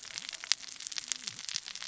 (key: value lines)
label: biophony, cascading saw
recorder: SoundTrap 600 or HydroMoth